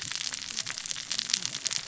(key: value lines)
label: biophony, cascading saw
recorder: SoundTrap 600 or HydroMoth